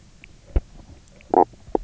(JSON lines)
{"label": "biophony, knock croak", "recorder": "SoundTrap 300"}